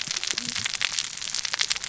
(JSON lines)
{"label": "biophony, cascading saw", "recorder": "SoundTrap 600 or HydroMoth"}